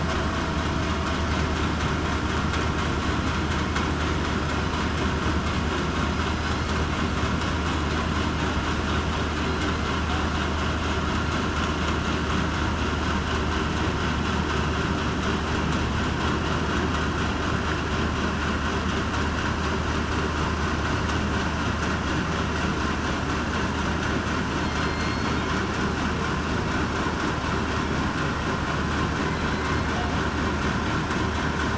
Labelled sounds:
24.6	25.3	killer whale, southern resident, 2.1 to 4.4 kHz
29.5	29.8	killer whale, southern resident, 2.0 to 2.1 kHz

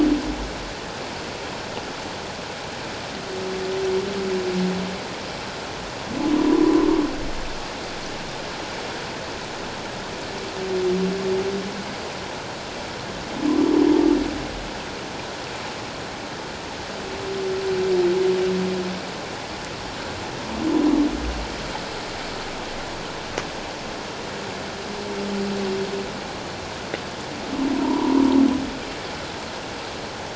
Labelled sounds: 6.4	6.9	humpback whale, 0.94 to 1.1 kHz
27.8	28.2	humpback whale, 0.88 to 1.1 kHz

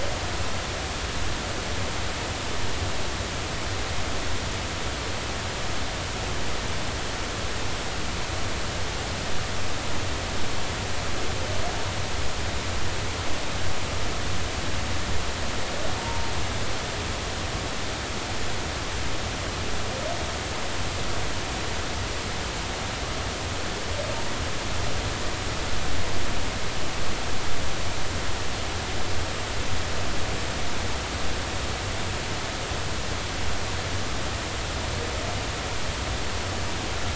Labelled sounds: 16.0	16.2	humpback whale, 0.90 to 0.99 kHz

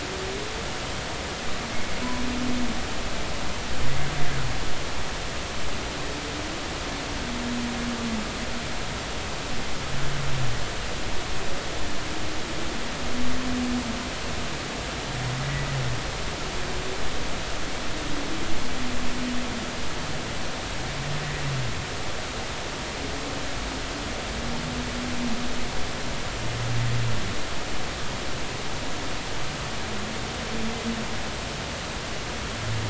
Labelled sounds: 15.4	15.7	humpback whale, 1.9 to 2.0 kHz

